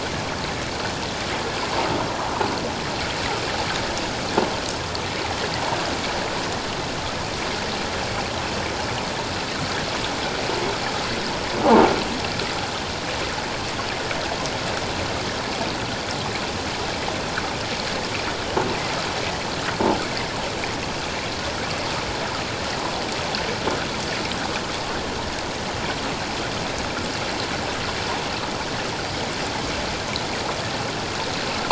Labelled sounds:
11.6	11.9	croaking sound likely from a nearby submerged object, 0.78 to 1.2 kHz

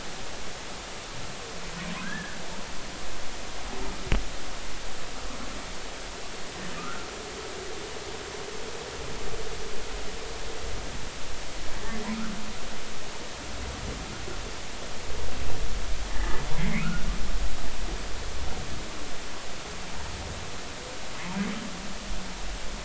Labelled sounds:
2.0	2.4	humpback whale, 1.3 to 1.8 kHz
6.7	7.1	humpback whale, 1.1 to 1.5 kHz
16.1	17.1	humpback whale, 1.2 to 2.6 kHz

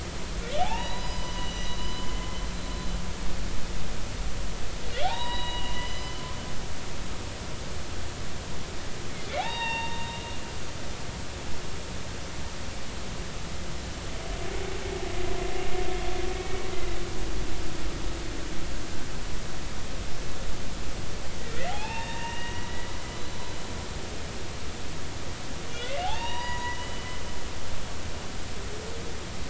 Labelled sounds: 0.6	2.5	humpback whale, 0.80 to 6.0 kHz
5.0	6.1	humpback whale, 0.80 to 5.1 kHz
9.3	10.1	humpback whale, 0.80 to 4.8 kHz
16.4	16.7	humpback whale, 2.2 to 2.3 kHz
21.4	23.0	humpback whale, 0.80 to 3.7 kHz
24.1	24.4	humpback whale, 3.9 to 4.0 kHz
25.7	27.6	humpback whale, 0.80 to 6.8 kHz

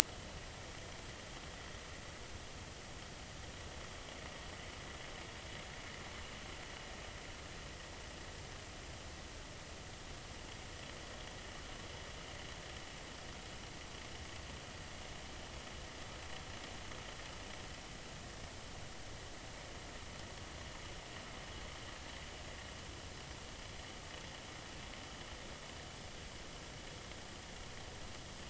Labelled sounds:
0.0	0.4	vessel noise, 1.9 to 2.1 kHz

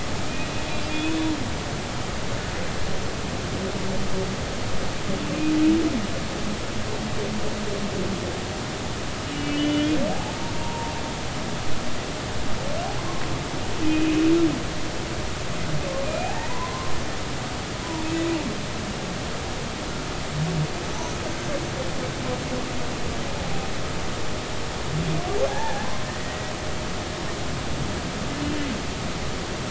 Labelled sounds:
0.9	1.2	humpback whale, 2.4 to 2.6 kHz
9.2	10.9	humpback whale, 0.83 to 3.0 kHz
13.8	14.1	humpback whale, 2.4 to 2.6 kHz
16.0	16.9	humpback whale, 0.80 to 2.6 kHz
25.5	26.5	humpback whale, 0.80 to 2.0 kHz

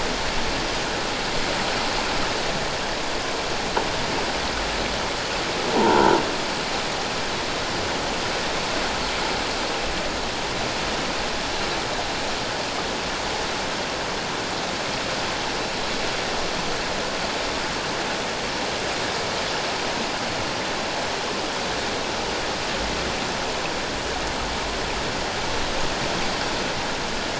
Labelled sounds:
5.7	6.2	croaking sound likely from a nearby submerged object, 0.84 to 1.6 kHz

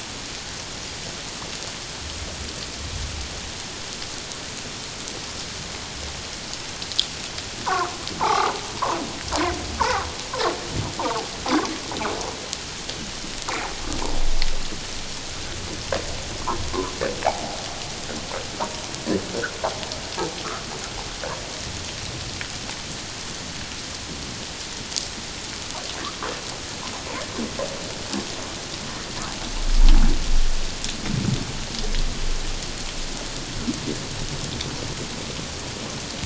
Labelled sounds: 7.6	7.9	humpback whale, 0.78 to 1.6 kHz
8.2	8.5	humpback whale, 0.78 to 1.4 kHz
9.8	10.1	humpback whale, 1.0 to 2.1 kHz
11.0	11.3	humpback whale, 0.78 to 1.2 kHz

